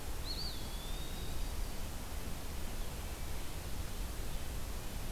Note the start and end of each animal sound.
[0.00, 1.72] Eastern Wood-Pewee (Contopus virens)
[0.53, 1.85] Yellow-rumped Warbler (Setophaga coronata)

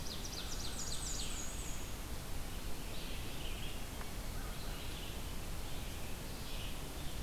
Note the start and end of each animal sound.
[0.00, 1.50] American Crow (Corvus brachyrhynchos)
[0.00, 7.23] Red-eyed Vireo (Vireo olivaceus)
[0.31, 1.93] Black-and-white Warbler (Mniotilta varia)

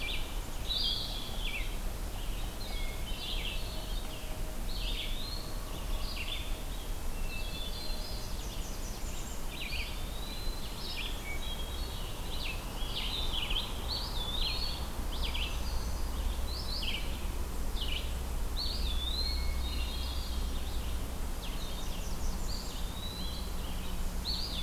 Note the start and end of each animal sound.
[0.00, 5.14] Red-eyed Vireo (Vireo olivaceus)
[2.56, 4.06] Hermit Thrush (Catharus guttatus)
[4.55, 5.62] Eastern Wood-Pewee (Contopus virens)
[5.43, 24.62] Red-eyed Vireo (Vireo olivaceus)
[6.97, 8.44] Hermit Thrush (Catharus guttatus)
[7.96, 9.47] Blackburnian Warbler (Setophaga fusca)
[9.58, 10.67] Eastern Wood-Pewee (Contopus virens)
[11.10, 12.21] Hermit Thrush (Catharus guttatus)
[13.75, 14.86] Eastern Wood-Pewee (Contopus virens)
[15.05, 16.11] Hermit Thrush (Catharus guttatus)
[18.49, 19.55] Eastern Wood-Pewee (Contopus virens)
[19.26, 20.67] Hermit Thrush (Catharus guttatus)
[21.40, 22.80] Blackburnian Warbler (Setophaga fusca)
[22.36, 23.51] Eastern Wood-Pewee (Contopus virens)

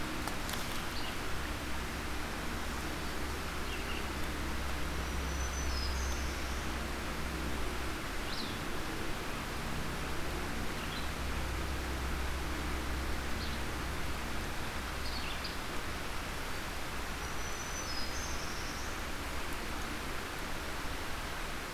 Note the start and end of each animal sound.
[0.00, 15.78] Red-eyed Vireo (Vireo olivaceus)
[4.88, 6.45] Black-throated Green Warbler (Setophaga virens)
[17.08, 18.45] Black-throated Green Warbler (Setophaga virens)
[17.76, 19.02] Black-throated Blue Warbler (Setophaga caerulescens)

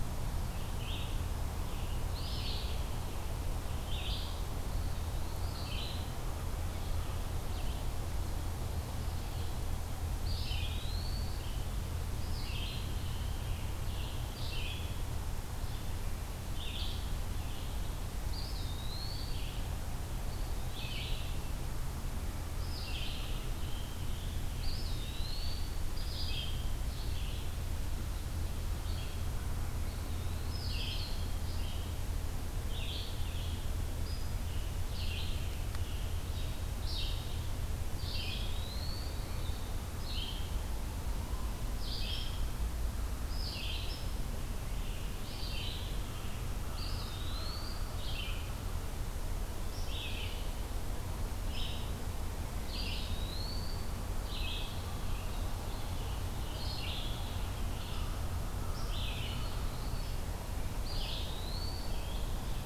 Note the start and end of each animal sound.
[0.00, 45.86] Red-eyed Vireo (Vireo olivaceus)
[2.04, 2.80] Eastern Wood-Pewee (Contopus virens)
[4.64, 5.52] Eastern Wood-Pewee (Contopus virens)
[10.18, 11.48] Eastern Wood-Pewee (Contopus virens)
[12.23, 15.14] Scarlet Tanager (Piranga olivacea)
[18.23, 19.58] Eastern Wood-Pewee (Contopus virens)
[22.82, 25.84] Scarlet Tanager (Piranga olivacea)
[24.54, 25.87] Eastern Wood-Pewee (Contopus virens)
[29.72, 30.57] Eastern Wood-Pewee (Contopus virens)
[34.33, 36.63] Scarlet Tanager (Piranga olivacea)
[38.23, 39.47] Eastern Wood-Pewee (Contopus virens)
[46.06, 48.88] American Crow (Corvus brachyrhynchos)
[46.55, 62.65] Red-eyed Vireo (Vireo olivaceus)
[46.66, 47.99] Eastern Wood-Pewee (Contopus virens)
[52.69, 54.04] Eastern Wood-Pewee (Contopus virens)
[59.20, 60.19] Eastern Wood-Pewee (Contopus virens)
[60.77, 62.17] Eastern Wood-Pewee (Contopus virens)

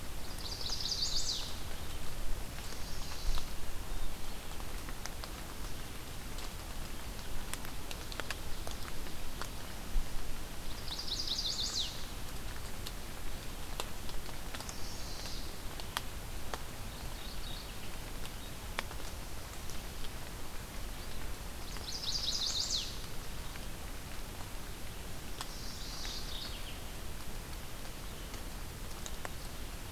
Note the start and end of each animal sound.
[0.00, 2.17] Chestnut-sided Warbler (Setophaga pensylvanica)
[2.53, 3.65] Chestnut-sided Warbler (Setophaga pensylvanica)
[10.55, 12.06] Chestnut-sided Warbler (Setophaga pensylvanica)
[14.49, 15.55] Chestnut-sided Warbler (Setophaga pensylvanica)
[16.75, 18.18] Mourning Warbler (Geothlypis philadelphia)
[21.43, 22.96] Chestnut-sided Warbler (Setophaga pensylvanica)
[25.14, 26.41] Chestnut-sided Warbler (Setophaga pensylvanica)
[25.52, 27.08] Mourning Warbler (Geothlypis philadelphia)

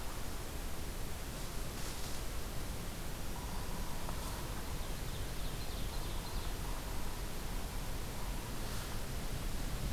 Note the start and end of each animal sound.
[3.14, 5.06] Yellow-bellied Sapsucker (Sphyrapicus varius)
[4.70, 6.63] Ovenbird (Seiurus aurocapilla)

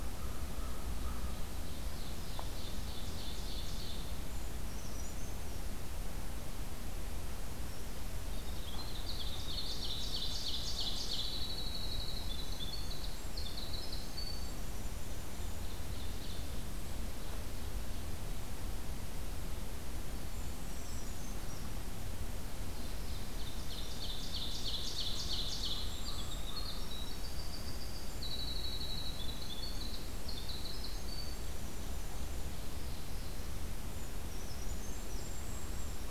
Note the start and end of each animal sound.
[0.00, 1.82] American Crow (Corvus brachyrhynchos)
[1.53, 4.28] Ovenbird (Seiurus aurocapilla)
[4.24, 5.71] Brown Creeper (Certhia americana)
[8.29, 15.52] Winter Wren (Troglodytes hiemalis)
[9.03, 11.47] Ovenbird (Seiurus aurocapilla)
[15.14, 16.73] Ovenbird (Seiurus aurocapilla)
[20.21, 21.71] Brown Creeper (Certhia americana)
[23.08, 26.11] Ovenbird (Seiurus aurocapilla)
[24.79, 26.53] Golden-crowned Kinglet (Regulus satrapa)
[25.70, 27.15] American Crow (Corvus brachyrhynchos)
[25.92, 32.45] Winter Wren (Troglodytes hiemalis)
[34.23, 35.23] Brown Creeper (Certhia americana)
[35.02, 36.10] Golden-crowned Kinglet (Regulus satrapa)

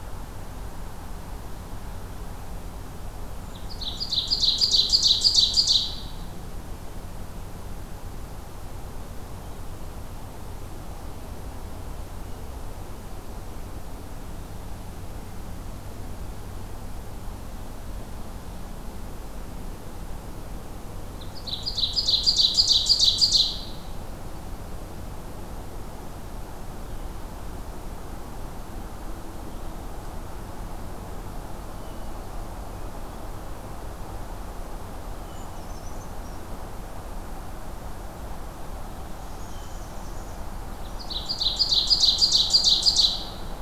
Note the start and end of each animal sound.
[3.52, 6.33] Ovenbird (Seiurus aurocapilla)
[21.16, 23.95] Ovenbird (Seiurus aurocapilla)
[31.59, 32.19] Hermit Thrush (Catharus guttatus)
[35.25, 36.47] Brown Creeper (Certhia americana)
[39.14, 40.44] Black-capped Chickadee (Poecile atricapillus)
[39.37, 40.04] Hermit Thrush (Catharus guttatus)
[40.94, 43.62] Ovenbird (Seiurus aurocapilla)

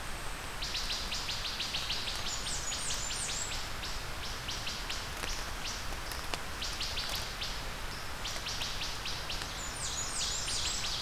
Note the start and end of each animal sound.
[0.00, 11.02] Wood Thrush (Hylocichla mustelina)
[2.00, 3.56] Blackburnian Warbler (Setophaga fusca)
[9.38, 10.98] Blackburnian Warbler (Setophaga fusca)
[9.53, 11.02] Ovenbird (Seiurus aurocapilla)

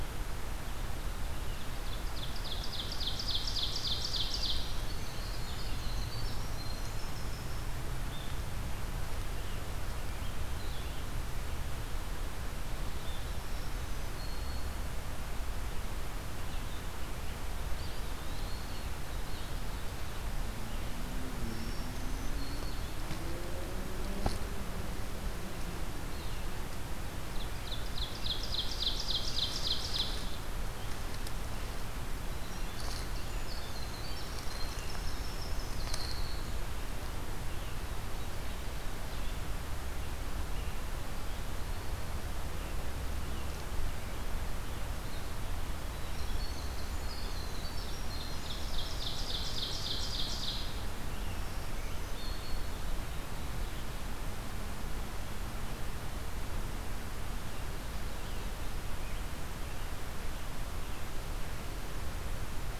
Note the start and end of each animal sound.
[1.76, 4.69] Ovenbird (Seiurus aurocapilla)
[4.09, 7.75] Winter Wren (Troglodytes hiemalis)
[13.14, 14.87] Black-throated Green Warbler (Setophaga virens)
[17.55, 19.02] Eastern Wood-Pewee (Contopus virens)
[21.29, 22.86] Black-throated Green Warbler (Setophaga virens)
[27.19, 30.16] Ovenbird (Seiurus aurocapilla)
[32.24, 36.77] Winter Wren (Troglodytes hiemalis)
[45.83, 49.43] Winter Wren (Troglodytes hiemalis)
[47.95, 50.69] Ovenbird (Seiurus aurocapilla)
[51.12, 52.77] Black-throated Green Warbler (Setophaga virens)

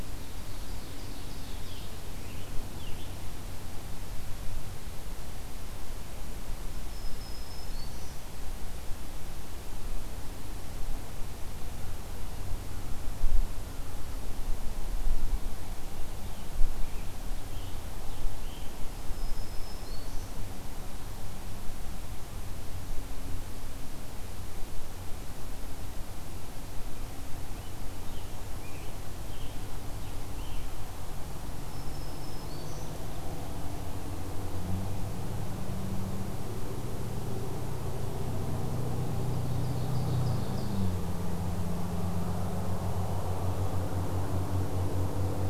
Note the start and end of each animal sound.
[0.00, 2.00] Ovenbird (Seiurus aurocapilla)
[1.56, 3.15] Scarlet Tanager (Piranga olivacea)
[6.68, 8.28] Black-throated Green Warbler (Setophaga virens)
[16.13, 18.89] Scarlet Tanager (Piranga olivacea)
[18.87, 20.47] Black-throated Green Warbler (Setophaga virens)
[27.35, 30.72] Scarlet Tanager (Piranga olivacea)
[31.46, 32.93] Black-throated Green Warbler (Setophaga virens)
[39.05, 41.08] Ovenbird (Seiurus aurocapilla)

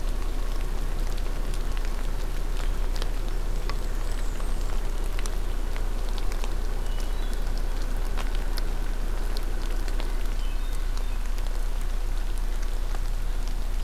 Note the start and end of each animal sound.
[3.31, 4.81] Blackburnian Warbler (Setophaga fusca)
[6.70, 7.92] Hermit Thrush (Catharus guttatus)
[10.27, 11.25] Hermit Thrush (Catharus guttatus)

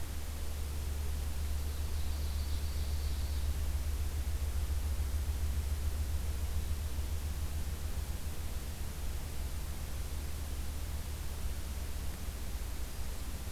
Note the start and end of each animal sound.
[1.29, 3.63] Ovenbird (Seiurus aurocapilla)

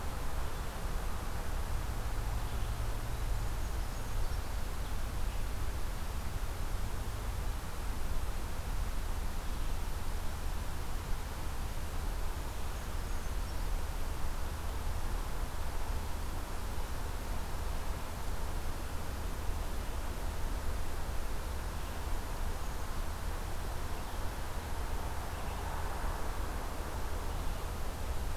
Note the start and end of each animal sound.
[3.17, 4.61] Brown Creeper (Certhia americana)
[12.26, 13.81] Brown Creeper (Certhia americana)

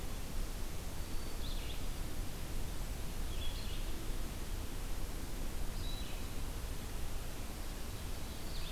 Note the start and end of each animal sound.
[0.45, 8.71] Red-eyed Vireo (Vireo olivaceus)

